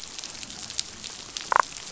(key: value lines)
label: biophony, damselfish
recorder: SoundTrap 500